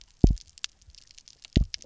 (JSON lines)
{"label": "biophony, double pulse", "recorder": "SoundTrap 300"}